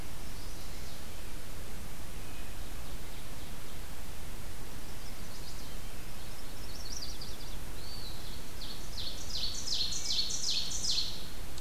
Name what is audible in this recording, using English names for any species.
Chestnut-sided Warbler, Red-breasted Nuthatch, Ovenbird, Eastern Wood-Pewee, Wood Thrush